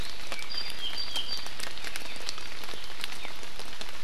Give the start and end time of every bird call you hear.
[0.27, 1.57] Apapane (Himatione sanguinea)

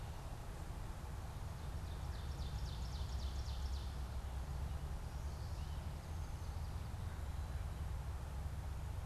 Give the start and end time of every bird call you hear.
[1.16, 4.16] Ovenbird (Seiurus aurocapilla)
[5.66, 6.96] Chestnut-sided Warbler (Setophaga pensylvanica)

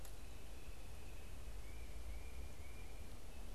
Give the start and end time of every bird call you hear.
[0.00, 3.27] Tufted Titmouse (Baeolophus bicolor)

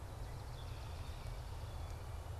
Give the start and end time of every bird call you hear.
[0.00, 2.20] Swamp Sparrow (Melospiza georgiana)
[0.40, 1.50] Red-winged Blackbird (Agelaius phoeniceus)

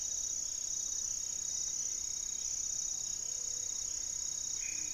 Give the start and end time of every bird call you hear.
[0.00, 4.93] Amazonian Trogon (Trogon ramonianus)
[0.00, 4.93] Buff-breasted Wren (Cantorchilus leucotis)
[1.15, 3.05] Plumbeous Antbird (Myrmelastes hyperythrus)
[3.05, 3.95] Gray-fronted Dove (Leptotila rufaxilla)

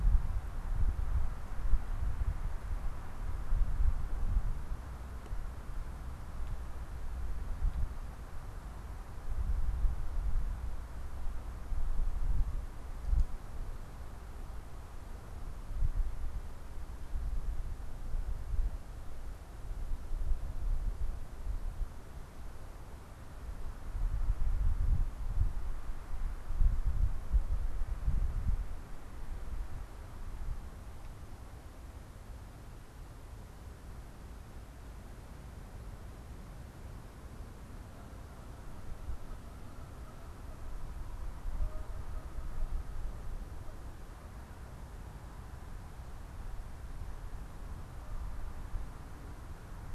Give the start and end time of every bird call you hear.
[37.84, 43.34] Canada Goose (Branta canadensis)
[47.94, 48.54] Canada Goose (Branta canadensis)

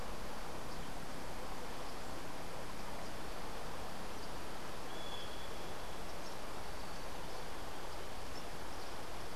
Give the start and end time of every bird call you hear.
[4.86, 5.56] Great Kiskadee (Pitangus sulphuratus)

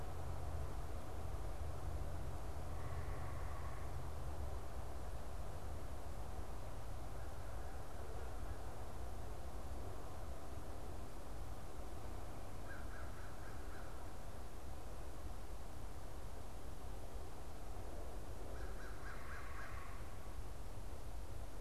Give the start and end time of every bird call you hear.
[2.76, 4.16] unidentified bird
[12.56, 14.06] American Crow (Corvus brachyrhynchos)
[18.36, 19.96] American Crow (Corvus brachyrhynchos)

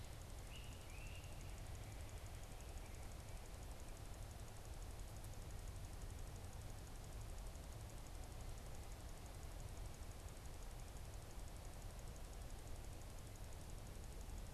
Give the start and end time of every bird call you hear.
[0.30, 1.70] Great Crested Flycatcher (Myiarchus crinitus)

